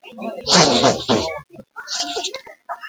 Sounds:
Sniff